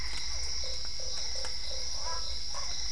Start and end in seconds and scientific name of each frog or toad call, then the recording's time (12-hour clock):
0.0	0.9	Boana albopunctata
0.0	2.9	Dendropsophus cruzi
0.0	2.9	Physalaemus cuvieri
0.5	2.3	Boana lundii
7:00pm